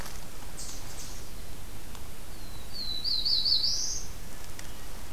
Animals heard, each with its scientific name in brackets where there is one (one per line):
Eastern Chipmunk (Tamias striatus)
Black-throated Blue Warbler (Setophaga caerulescens)